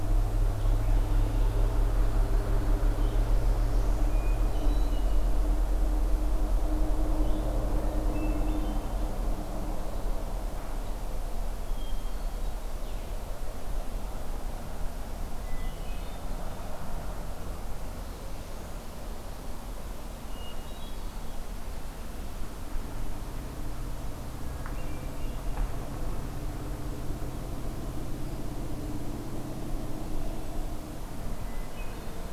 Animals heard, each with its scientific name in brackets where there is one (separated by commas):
Hermit Thrush (Catharus guttatus), Northern Parula (Setophaga americana), Red-winged Blackbird (Agelaius phoeniceus)